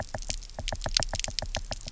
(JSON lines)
{"label": "biophony, knock", "recorder": "SoundTrap 300"}